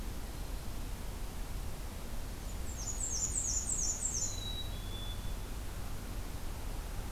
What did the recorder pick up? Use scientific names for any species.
Mniotilta varia, Poecile atricapillus